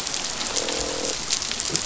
{"label": "biophony, croak", "recorder": "SoundTrap 500"}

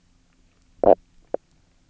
{"label": "biophony, knock croak", "recorder": "SoundTrap 300"}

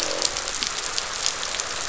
{"label": "biophony, croak", "recorder": "SoundTrap 500"}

